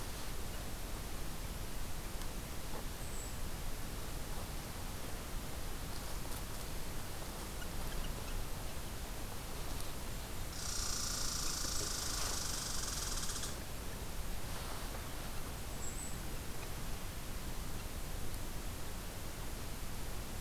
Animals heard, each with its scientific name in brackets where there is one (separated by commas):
Golden-crowned Kinglet (Regulus satrapa), Red Squirrel (Tamiasciurus hudsonicus)